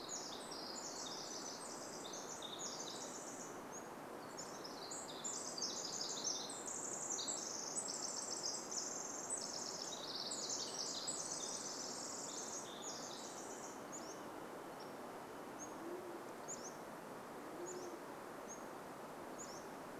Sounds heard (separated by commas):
Band-tailed Pigeon call, Varied Thrush song, Pacific Wren song, Pacific-slope Flycatcher song